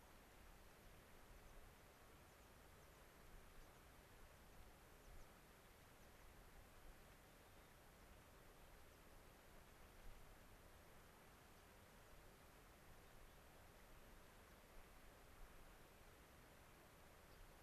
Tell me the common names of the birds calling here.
American Pipit